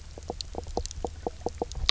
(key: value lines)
label: biophony, knock croak
recorder: SoundTrap 300